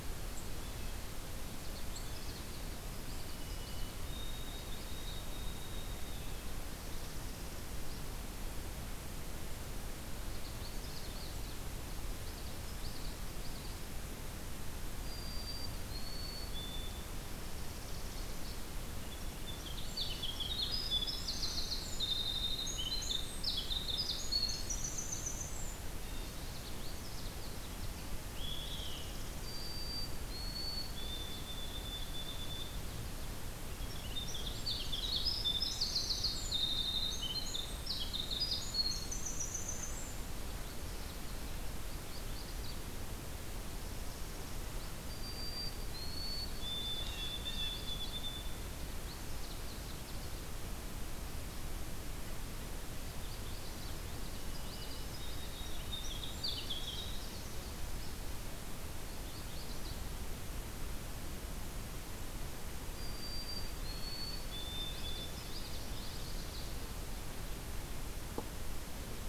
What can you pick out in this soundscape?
Blue Jay, Magnolia Warbler, Common Yellowthroat, White-throated Sparrow, Northern Parula, Canada Warbler, Winter Wren, Olive-sided Flycatcher